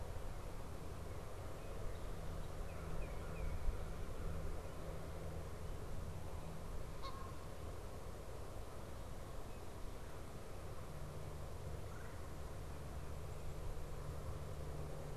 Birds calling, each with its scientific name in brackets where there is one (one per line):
Canada Goose (Branta canadensis)
Red-bellied Woodpecker (Melanerpes carolinus)
Red-winged Blackbird (Agelaius phoeniceus)
Tufted Titmouse (Baeolophus bicolor)